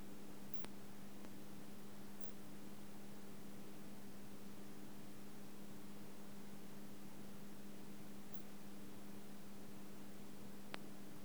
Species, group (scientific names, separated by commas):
Poecilimon thessalicus, Orthoptera